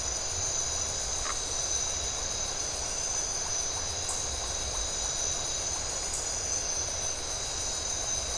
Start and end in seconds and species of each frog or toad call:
1.2	1.4	Phyllomedusa distincta
1:15am

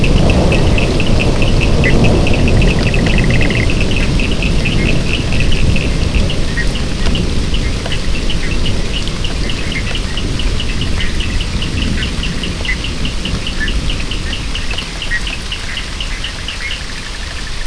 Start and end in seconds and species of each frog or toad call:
0.0	17.0	Cochran's lime tree frog
1.8	2.0	Bischoff's tree frog
4.7	5.0	Bischoff's tree frog
6.4	6.8	Bischoff's tree frog
7.6	16.8	Bischoff's tree frog
4:00am

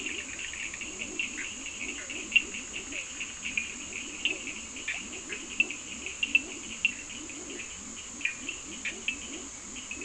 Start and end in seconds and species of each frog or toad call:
0.0	10.0	Leptodactylus latrans
0.0	10.0	Cochran's lime tree frog
0.8	5.0	Physalaemus cuvieri
1.2	2.4	Bischoff's tree frog
4.8	5.5	Bischoff's tree frog
8.0	9.1	Bischoff's tree frog
4:15am

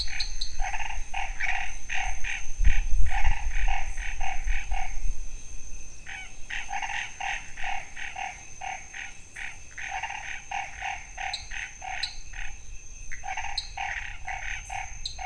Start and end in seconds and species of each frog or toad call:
0.0	0.6	dwarf tree frog
0.0	5.0	Chaco tree frog
6.1	15.2	Chaco tree frog
11.2	12.3	dwarf tree frog
13.0	13.2	Pithecopus azureus
13.4	13.8	dwarf tree frog
15.0	15.2	dwarf tree frog
7:15pm

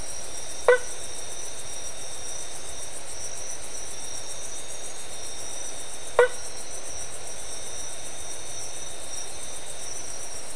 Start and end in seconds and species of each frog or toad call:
0.5	0.9	blacksmith tree frog
6.0	6.5	blacksmith tree frog
4:00am

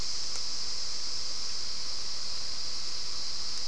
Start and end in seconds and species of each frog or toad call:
none
6:15pm

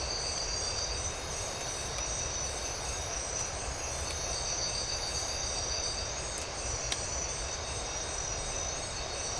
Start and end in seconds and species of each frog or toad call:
none
2:00am

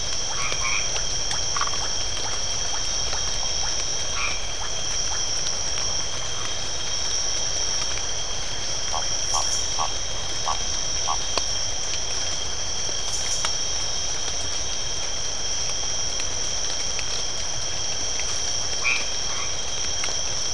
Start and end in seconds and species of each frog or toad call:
0.3	0.9	white-edged tree frog
1.4	1.8	Phyllomedusa distincta
4.1	4.5	white-edged tree frog
18.7	19.5	white-edged tree frog
7:30pm

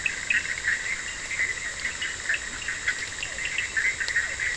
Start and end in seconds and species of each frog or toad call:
0.0	4.5	Bischoff's tree frog
0.0	4.5	Cochran's lime tree frog
3.2	4.5	Physalaemus cuvieri
1:15am

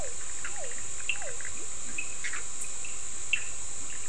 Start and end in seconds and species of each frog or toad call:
0.0	1.6	Physalaemus cuvieri
0.0	4.0	Cochran's lime tree frog
1.0	4.0	Bischoff's tree frog
1.3	2.8	Leptodactylus latrans
10:30pm

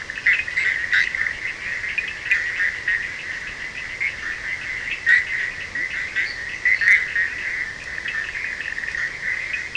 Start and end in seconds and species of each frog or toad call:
0.0	1.2	fine-lined tree frog
0.0	9.7	Bischoff's tree frog
0.0	9.7	Cochran's lime tree frog
6.2	7.1	fine-lined tree frog
4:15am

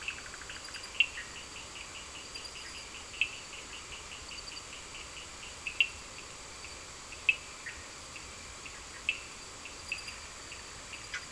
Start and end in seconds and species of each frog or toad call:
0.0	1.3	Bischoff's tree frog
0.0	11.3	Cochran's lime tree frog
7.6	7.8	Bischoff's tree frog
10:00pm

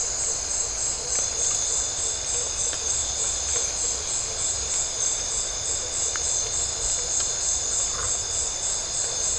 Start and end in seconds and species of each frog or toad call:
7.9	8.2	Phyllomedusa distincta
11:15pm

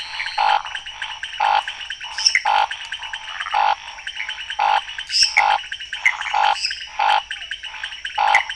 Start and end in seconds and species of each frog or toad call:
0.0	0.7	Elachistocleis matogrosso
0.0	8.5	pointedbelly frog
0.3	8.5	Scinax fuscovarius
2.1	2.5	lesser tree frog
5.1	5.4	lesser tree frog
6.0	6.4	waxy monkey tree frog
6.5	6.9	lesser tree frog
7.3	8.5	Physalaemus cuvieri
11:00pm

